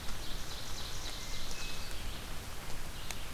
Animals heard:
Hermit Thrush (Catharus guttatus), Ovenbird (Seiurus aurocapilla), Red-eyed Vireo (Vireo olivaceus)

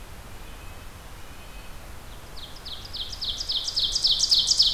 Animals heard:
Red-breasted Nuthatch (Sitta canadensis), Ovenbird (Seiurus aurocapilla)

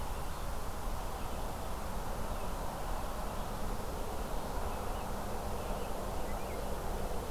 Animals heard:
Red-eyed Vireo (Vireo olivaceus), American Robin (Turdus migratorius)

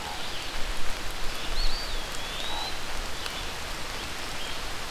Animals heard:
Common Raven (Corvus corax), Red-eyed Vireo (Vireo olivaceus), Eastern Wood-Pewee (Contopus virens)

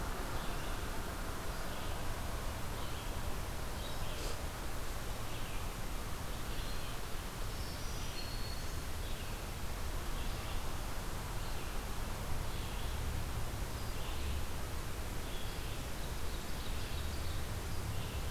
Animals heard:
Red-eyed Vireo (Vireo olivaceus), Black-throated Green Warbler (Setophaga virens), Ovenbird (Seiurus aurocapilla)

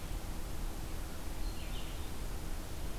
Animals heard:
Red-eyed Vireo (Vireo olivaceus)

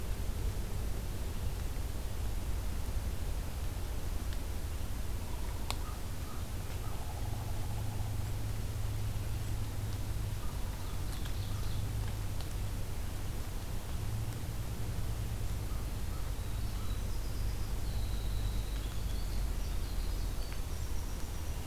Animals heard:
American Crow (Corvus brachyrhynchos), Pileated Woodpecker (Dryocopus pileatus), Ovenbird (Seiurus aurocapilla), Winter Wren (Troglodytes hiemalis)

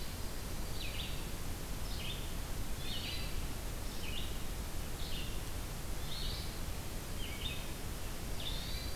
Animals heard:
Hermit Thrush (Catharus guttatus), Red-eyed Vireo (Vireo olivaceus)

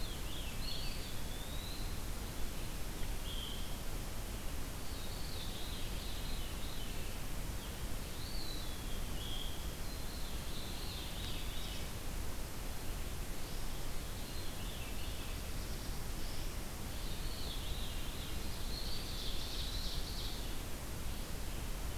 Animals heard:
Eastern Wood-Pewee (Contopus virens), Veery (Catharus fuscescens), Black-throated Blue Warbler (Setophaga caerulescens), Ovenbird (Seiurus aurocapilla)

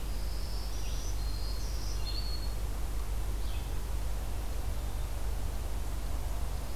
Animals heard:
Black-throated Green Warbler (Setophaga virens), Red-eyed Vireo (Vireo olivaceus)

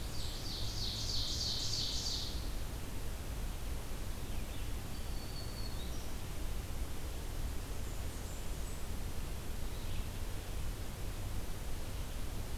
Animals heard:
Blackburnian Warbler (Setophaga fusca), Ovenbird (Seiurus aurocapilla), Black-throated Green Warbler (Setophaga virens)

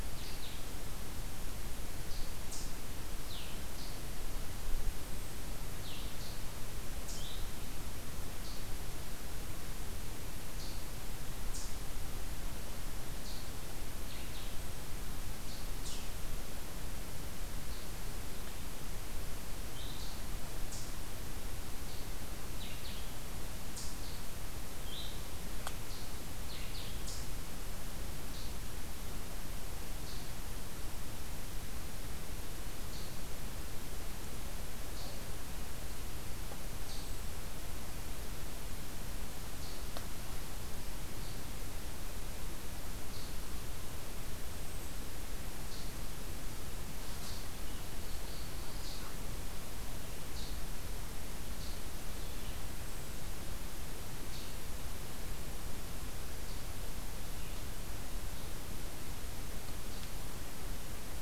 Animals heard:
Eastern Chipmunk (Tamias striatus), Black-throated Blue Warbler (Setophaga caerulescens), Blue-headed Vireo (Vireo solitarius)

